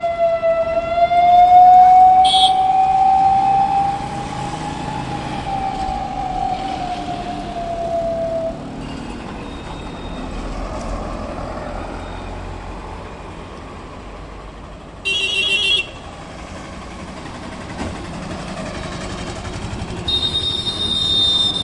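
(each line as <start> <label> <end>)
0.0 A police siren howls in the distance, gradually increasing in pitch and volume before fading away. 8.7
0.0 Traffic sounds of cars and trucks passing by in the distance. 21.6
2.3 A car horn honks once loudly. 2.6
15.1 A car horn honks repeatedly with a shrill, high-pitched sound. 16.0
20.1 A car horn honks shrill and continuously outdoors. 21.6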